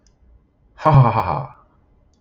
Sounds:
Laughter